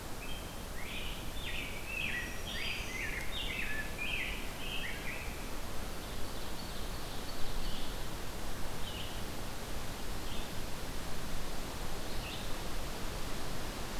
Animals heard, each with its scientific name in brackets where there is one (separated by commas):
Black-throated Green Warbler (Setophaga virens), Rose-breasted Grosbeak (Pheucticus ludovicianus), Red-eyed Vireo (Vireo olivaceus), Ovenbird (Seiurus aurocapilla)